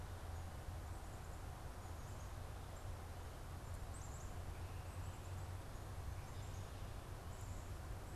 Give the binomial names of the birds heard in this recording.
Poecile atricapillus